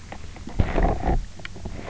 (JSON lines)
{"label": "biophony, knock croak", "recorder": "SoundTrap 300"}